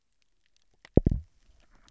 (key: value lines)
label: biophony, double pulse
recorder: SoundTrap 300